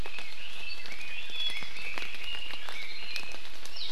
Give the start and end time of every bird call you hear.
[0.00, 3.40] Red-billed Leiothrix (Leiothrix lutea)

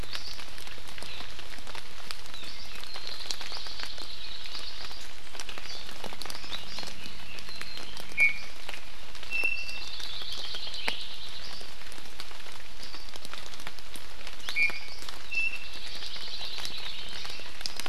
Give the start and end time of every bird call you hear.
[3.02, 5.02] Hawaii Creeper (Loxops mana)
[5.62, 5.92] Hawaii Amakihi (Chlorodrepanis virens)
[7.42, 8.52] Iiwi (Drepanis coccinea)
[9.32, 9.92] Iiwi (Drepanis coccinea)
[9.72, 11.42] Hawaii Creeper (Loxops mana)
[14.52, 15.02] Iiwi (Drepanis coccinea)
[15.32, 15.82] Iiwi (Drepanis coccinea)
[15.52, 17.32] Hawaii Creeper (Loxops mana)

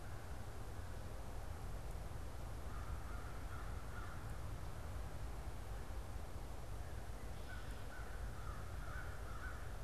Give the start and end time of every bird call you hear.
[0.00, 1.73] American Crow (Corvus brachyrhynchos)
[2.53, 4.93] American Crow (Corvus brachyrhynchos)
[6.93, 7.63] Red-winged Blackbird (Agelaius phoeniceus)
[7.33, 9.83] American Crow (Corvus brachyrhynchos)

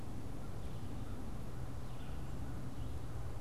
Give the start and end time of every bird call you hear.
[0.00, 3.41] Red-eyed Vireo (Vireo olivaceus)

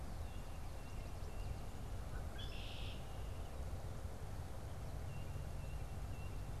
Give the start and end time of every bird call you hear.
[0.00, 1.80] Tufted Titmouse (Baeolophus bicolor)
[2.10, 3.20] Red-winged Blackbird (Agelaius phoeniceus)
[4.90, 6.60] Tufted Titmouse (Baeolophus bicolor)

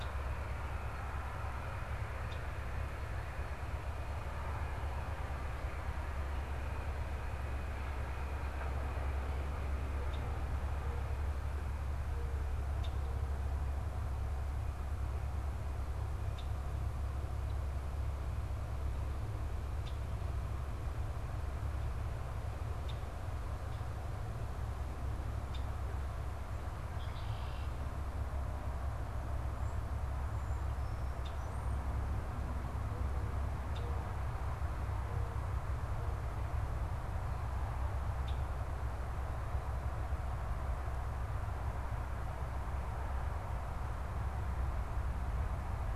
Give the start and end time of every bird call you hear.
[0.00, 38.67] Red-winged Blackbird (Agelaius phoeniceus)

